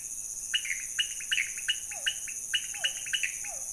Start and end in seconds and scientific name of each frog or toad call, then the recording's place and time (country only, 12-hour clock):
0.0	3.7	Leptodactylus podicipinus
0.0	3.7	Pithecopus azureus
1.7	3.7	Physalaemus cuvieri
Brazil, 2:15am